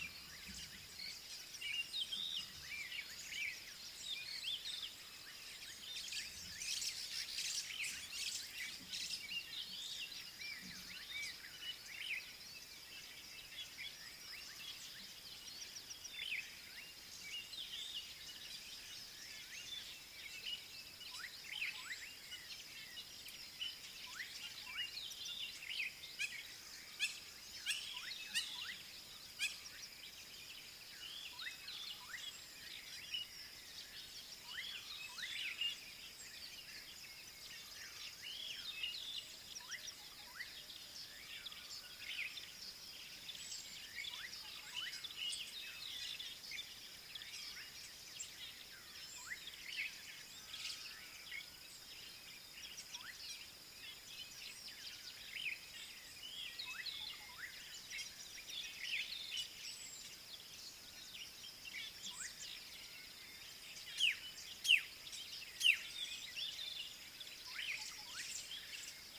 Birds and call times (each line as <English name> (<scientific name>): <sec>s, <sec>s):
Hamerkop (Scopus umbretta): 29.4s
Black-backed Puffback (Dryoscopus cubla): 64.0s, 65.7s